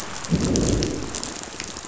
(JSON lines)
{"label": "biophony, growl", "recorder": "SoundTrap 500"}